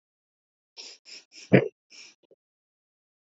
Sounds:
Sniff